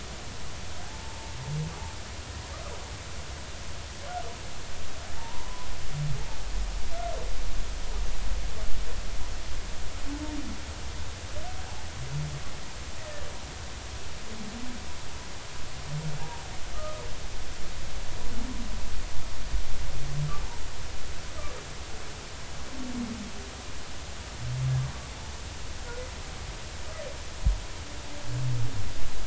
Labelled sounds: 0.8	1.3	humpback whale, 0.80 to 0.96 kHz
5.2	5.7	humpback whale, 0.86 to 1.1 kHz
16.2	17.0	humpback whale, 0.80 to 1.3 kHz

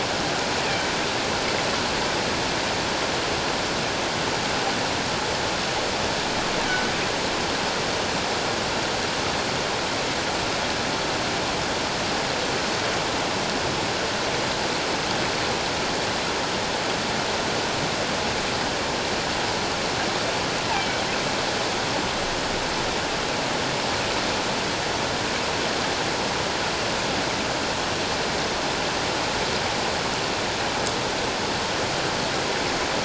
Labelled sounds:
20.8	21.0	killer whale, offshore, call OFF17, 2.2 to 2.4 kHz

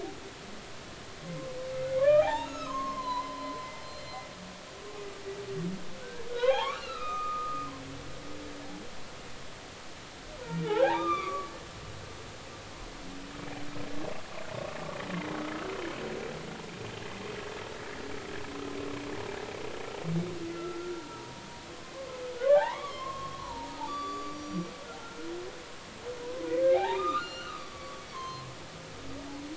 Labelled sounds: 2.0	4.3	humpback whale, 0.80 to 6.8 kHz
6.0	7.7	humpback whale, 0.80 to 5.7 kHz
10.6	11.5	humpback whale, 0.80 to 3.7 kHz
20.5	22.2	humpback whale, 0.86 to 1.5 kHz
22.5	25.3	humpback whale, 0.80 to 7.0 kHz
26.7	28.5	humpback whale, 0.80 to 7.3 kHz

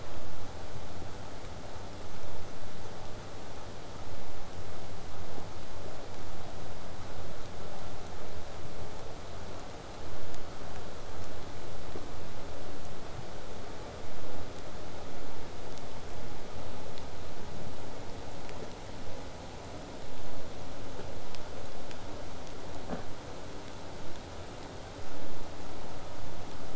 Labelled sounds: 0.0	1.0	vessel noise, 0.05 to 8.0 kHz

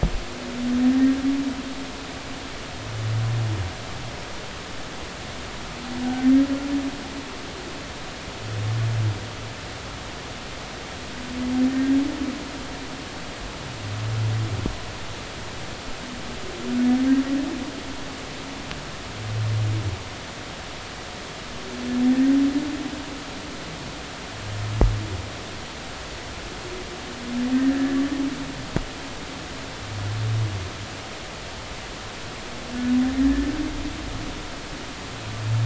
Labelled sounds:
27.5	28.0	humpback whale, 1.7 to 1.9 kHz

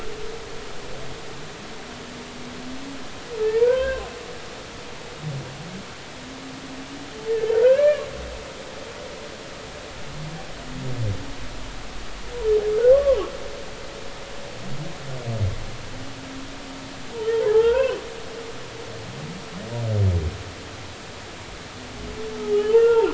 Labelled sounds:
3.5	4.1	humpback whale, 0.86 to 1.7 kHz
7.3	8.1	humpback whale, 1.1 to 2.5 kHz
12.9	13.2	humpback whale, 0.93 to 1.2 kHz
17.2	18.0	humpback whale, 0.80 to 3.3 kHz
22.4	23.0	humpback whale, 0.80 to 3.1 kHz

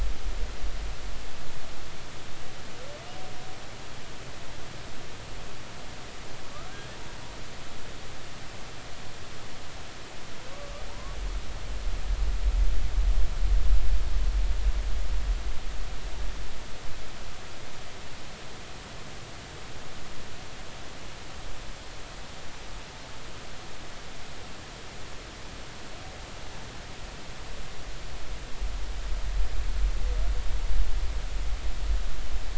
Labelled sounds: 10.9	11.2	humpback whale, 0.86 to 1.2 kHz

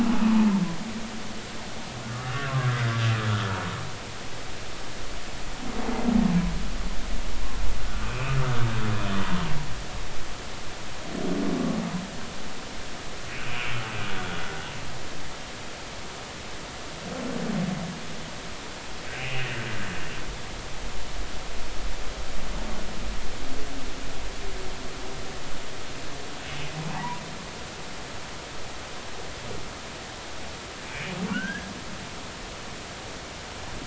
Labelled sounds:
0.2	0.5	humpback whale, 0.83 to 1.3 kHz
2.1	2.9	humpback whale, 1.1 to 1.7 kHz
8.0	8.3	humpback whale, 2.3 to 2.7 kHz
13.3	13.7	humpback whale, 2.3 to 2.6 kHz
19.2	19.5	humpback whale, 2.3 to 3.0 kHz
26.9	27.2	humpback whale, 0.80 to 1.1 kHz
30.8	31.7	humpback whale, 1.3 to 3.3 kHz

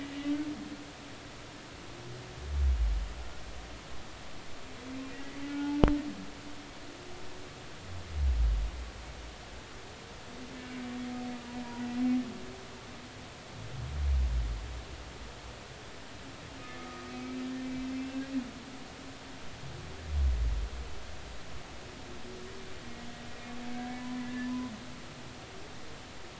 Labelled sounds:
0.1	0.4	humpback whale, 2.8 to 3.0 kHz
5.1	5.8	humpback whale, 0.80 to 2.0 kHz
16.8	17.1	humpback whale, 1.2 to 1.3 kHz
18.0	18.3	humpback whale, 1.6 to 2.8 kHz
23.7	24.7	humpback whale, 0.90 to 1.8 kHz

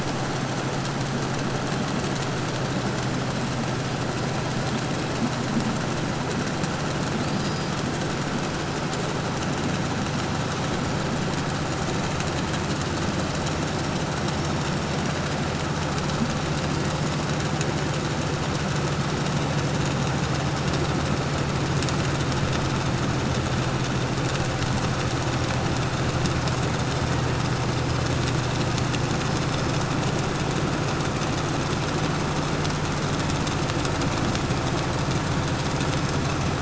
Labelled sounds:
2.7	4.8	killer whale, 4.7 to 5.5 kHz
7.1	9.1	killer whale, 3.7 to 6.2 kHz
13.2	15.2	killer whale, 5.1 to 5.9 kHz
16.3	17.4	killer whale, 1.7 to 5.1 kHz
26.5	27.5	killer whale, 1.6 to 3.1 kHz
28.7	30.0	killer whale, 5.0 to 5.5 kHz

